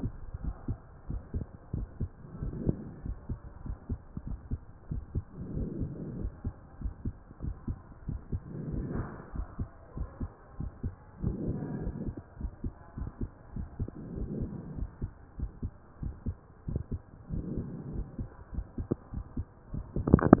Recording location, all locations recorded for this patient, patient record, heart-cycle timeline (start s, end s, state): pulmonary valve (PV)
aortic valve (AV)+pulmonary valve (PV)+tricuspid valve (TV)+mitral valve (MV)
#Age: nan
#Sex: Female
#Height: nan
#Weight: nan
#Pregnancy status: True
#Murmur: Absent
#Murmur locations: nan
#Most audible location: nan
#Systolic murmur timing: nan
#Systolic murmur shape: nan
#Systolic murmur grading: nan
#Systolic murmur pitch: nan
#Systolic murmur quality: nan
#Diastolic murmur timing: nan
#Diastolic murmur shape: nan
#Diastolic murmur grading: nan
#Diastolic murmur pitch: nan
#Diastolic murmur quality: nan
#Outcome: Normal
#Campaign: 2015 screening campaign
0.00	0.76	unannotated
0.76	1.08	diastole
1.08	1.22	S1
1.22	1.32	systole
1.32	1.46	S2
1.46	1.72	diastole
1.72	1.88	S1
1.88	2.00	systole
2.00	2.10	S2
2.10	2.40	diastole
2.40	2.54	S1
2.54	2.60	systole
2.60	2.76	S2
2.76	3.04	diastole
3.04	3.18	S1
3.18	3.28	systole
3.28	3.38	S2
3.38	3.64	diastole
3.64	3.76	S1
3.76	3.90	systole
3.90	4.00	S2
4.00	4.28	diastole
4.28	4.40	S1
4.40	4.50	systole
4.50	4.60	S2
4.60	4.90	diastole
4.90	5.02	S1
5.02	5.14	systole
5.14	5.24	S2
5.24	5.54	diastole
5.54	5.72	S1
5.72	5.78	systole
5.78	5.92	S2
5.92	6.18	diastole
6.18	6.32	S1
6.32	6.44	systole
6.44	6.54	S2
6.54	6.80	diastole
6.80	6.94	S1
6.94	7.04	systole
7.04	7.14	S2
7.14	7.42	diastole
7.42	7.54	S1
7.54	7.64	systole
7.64	7.76	S2
7.76	8.06	diastole
8.06	8.20	S1
8.20	8.32	systole
8.32	8.42	S2
8.42	8.68	diastole
8.68	8.86	S1
8.86	8.94	systole
8.94	9.08	S2
9.08	9.34	diastole
9.34	9.46	S1
9.46	9.58	systole
9.58	9.68	S2
9.68	9.96	diastole
9.96	10.08	S1
10.08	10.20	systole
10.20	10.30	S2
10.30	10.58	diastole
10.58	10.72	S1
10.72	10.84	systole
10.84	10.94	S2
10.94	11.22	diastole
11.22	11.38	S1
11.38	11.44	systole
11.44	11.56	S2
11.56	11.80	diastole
11.80	11.94	S1
11.94	12.00	systole
12.00	12.16	S2
12.16	12.40	diastole
12.40	12.52	S1
12.52	12.60	systole
12.60	12.72	S2
12.72	12.98	diastole
12.98	13.12	S1
13.12	13.20	systole
13.20	13.30	S2
13.30	13.56	diastole
13.56	13.68	S1
13.68	13.78	systole
13.78	13.88	S2
13.88	14.14	diastole
14.14	14.28	S1
14.28	14.38	systole
14.38	14.52	S2
14.52	14.78	diastole
14.78	14.90	S1
14.90	15.02	systole
15.02	15.12	S2
15.12	15.38	diastole
15.38	15.50	S1
15.50	15.60	systole
15.60	15.70	S2
15.70	16.02	diastole
16.02	16.16	S1
16.16	16.26	systole
16.26	16.36	S2
16.36	16.68	diastole
16.68	16.82	S1
16.82	16.92	systole
16.92	17.00	S2
17.00	17.30	diastole
17.30	20.40	unannotated